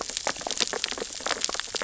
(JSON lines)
{"label": "biophony, sea urchins (Echinidae)", "recorder": "SoundTrap 600 or HydroMoth"}